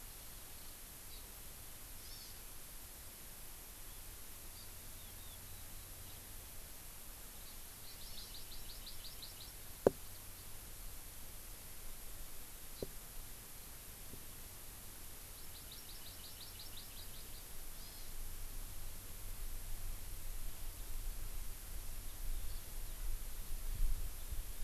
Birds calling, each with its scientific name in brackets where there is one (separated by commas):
Hawaii Amakihi (Chlorodrepanis virens)